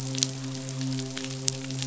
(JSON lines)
{"label": "biophony, midshipman", "recorder": "SoundTrap 500"}